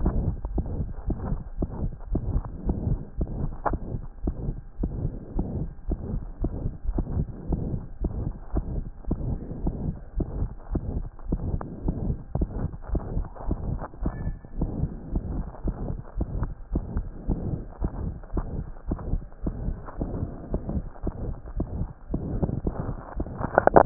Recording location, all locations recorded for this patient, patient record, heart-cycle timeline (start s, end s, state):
aortic valve (AV)
aortic valve (AV)+pulmonary valve (PV)+tricuspid valve (TV)+mitral valve (MV)
#Age: Child
#Sex: Female
#Height: 121.0 cm
#Weight: 28.5 kg
#Pregnancy status: False
#Murmur: Present
#Murmur locations: aortic valve (AV)+mitral valve (MV)+pulmonary valve (PV)+tricuspid valve (TV)
#Most audible location: pulmonary valve (PV)
#Systolic murmur timing: Holosystolic
#Systolic murmur shape: Plateau
#Systolic murmur grading: III/VI or higher
#Systolic murmur pitch: High
#Systolic murmur quality: Blowing
#Diastolic murmur timing: nan
#Diastolic murmur shape: nan
#Diastolic murmur grading: nan
#Diastolic murmur pitch: nan
#Diastolic murmur quality: nan
#Outcome: Abnormal
#Campaign: 2014 screening campaign
0.00	0.54	unannotated
0.54	0.64	S1
0.64	0.78	systole
0.78	0.88	S2
0.88	1.06	diastole
1.06	1.18	S1
1.18	1.28	systole
1.28	1.40	S2
1.40	1.58	diastole
1.58	1.68	S1
1.68	1.82	systole
1.82	1.92	S2
1.92	2.12	diastole
2.12	2.22	S1
2.22	2.32	systole
2.32	2.42	S2
2.42	2.66	diastole
2.66	2.76	S1
2.76	2.86	systole
2.86	2.98	S2
2.98	3.18	diastole
3.18	3.28	S1
3.28	3.40	systole
3.40	3.50	S2
3.50	3.68	diastole
3.68	3.80	S1
3.80	3.92	systole
3.92	4.02	S2
4.02	4.24	diastole
4.24	4.34	S1
4.34	4.46	systole
4.46	4.56	S2
4.56	4.80	diastole
4.80	4.92	S1
4.92	5.02	systole
5.02	5.12	S2
5.12	5.36	diastole
5.36	5.48	S1
5.48	5.58	systole
5.58	5.68	S2
5.68	5.90	diastole
5.90	5.98	S1
5.98	6.10	systole
6.10	6.22	S2
6.22	6.42	diastole
6.42	6.52	S1
6.52	6.64	systole
6.64	6.72	S2
6.72	6.88	diastole
6.88	7.04	S1
7.04	7.14	systole
7.14	7.26	S2
7.26	7.50	diastole
7.50	7.62	S1
7.62	7.72	systole
7.72	7.80	S2
7.80	8.02	diastole
8.02	8.12	S1
8.12	8.20	systole
8.20	8.32	S2
8.32	8.54	diastole
8.54	8.64	S1
8.64	8.74	systole
8.74	8.84	S2
8.84	9.08	diastole
9.08	9.18	S1
9.18	9.28	systole
9.28	9.38	S2
9.38	9.62	diastole
9.62	9.74	S1
9.74	9.84	systole
9.84	9.94	S2
9.94	10.16	diastole
10.16	10.28	S1
10.28	10.38	systole
10.38	10.50	S2
10.50	10.72	diastole
10.72	10.82	S1
10.82	10.94	systole
10.94	11.06	S2
11.06	11.28	diastole
11.28	11.40	S1
11.40	11.50	systole
11.50	11.60	S2
11.60	11.84	diastole
11.84	11.96	S1
11.96	12.06	systole
12.06	12.16	S2
12.16	12.36	diastole
12.36	12.48	S1
12.48	12.58	systole
12.58	12.68	S2
12.68	12.90	diastole
12.90	13.02	S1
13.02	13.14	systole
13.14	13.26	S2
13.26	13.48	diastole
13.48	13.58	S1
13.58	13.68	systole
13.68	13.80	S2
13.80	14.02	diastole
14.02	14.14	S1
14.14	14.24	systole
14.24	14.34	S2
14.34	14.58	diastole
14.58	14.70	S1
14.70	14.80	systole
14.80	14.90	S2
14.90	15.14	diastole
15.14	15.24	S1
15.24	15.34	systole
15.34	15.44	S2
15.44	15.64	diastole
15.64	15.74	S1
15.74	15.84	systole
15.84	15.96	S2
15.96	16.18	diastole
16.18	16.28	S1
16.28	16.38	systole
16.38	16.50	S2
16.50	16.72	diastole
16.72	16.84	S1
16.84	16.94	systole
16.94	17.06	S2
17.06	17.28	diastole
17.28	17.40	S1
17.40	17.50	systole
17.50	17.60	S2
17.60	17.82	diastole
17.82	17.92	S1
17.92	18.04	systole
18.04	18.14	S2
18.14	18.34	diastole
18.34	18.46	S1
18.46	18.56	systole
18.56	18.64	S2
18.64	18.88	diastole
18.88	18.98	S1
18.98	19.10	systole
19.10	19.22	S2
19.22	19.48	diastole
19.48	19.54	S1
19.54	19.64	systole
19.64	19.76	S2
19.76	20.00	diastole
20.00	20.10	S1
20.10	20.20	systole
20.20	20.30	S2
20.30	20.52	diastole
20.52	20.62	S1
20.62	20.74	systole
20.74	20.84	S2
20.84	21.04	diastole
21.04	21.12	S1
21.12	21.24	systole
21.24	21.34	S2
21.34	21.56	diastole
21.56	21.66	S1
21.66	21.78	systole
21.78	21.88	S2
21.88	22.09	diastole
22.09	23.86	unannotated